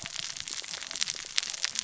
{"label": "biophony, cascading saw", "recorder": "SoundTrap 600 or HydroMoth"}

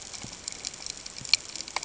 {"label": "ambient", "recorder": "HydroMoth"}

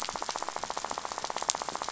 {"label": "biophony, rattle", "recorder": "SoundTrap 500"}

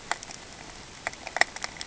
{"label": "ambient", "recorder": "HydroMoth"}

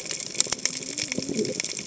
{"label": "biophony, cascading saw", "recorder": "HydroMoth"}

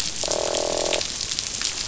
{"label": "biophony, croak", "recorder": "SoundTrap 500"}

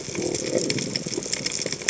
{"label": "biophony", "recorder": "HydroMoth"}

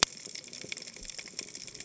{"label": "biophony, cascading saw", "recorder": "HydroMoth"}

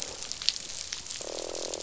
{"label": "biophony, croak", "recorder": "SoundTrap 500"}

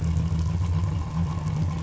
{"label": "anthrophony, boat engine", "recorder": "SoundTrap 500"}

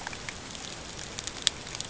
{"label": "ambient", "recorder": "HydroMoth"}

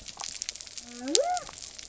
{"label": "biophony", "recorder": "SoundTrap 300"}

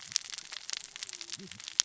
{"label": "biophony, cascading saw", "recorder": "SoundTrap 600 or HydroMoth"}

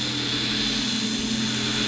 {"label": "anthrophony, boat engine", "recorder": "SoundTrap 500"}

